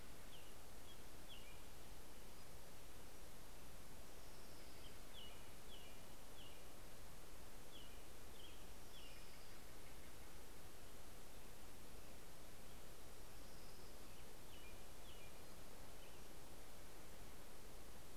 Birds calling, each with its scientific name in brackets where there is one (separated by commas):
Pacific-slope Flycatcher (Empidonax difficilis), Orange-crowned Warbler (Leiothlypis celata), American Robin (Turdus migratorius), Steller's Jay (Cyanocitta stelleri)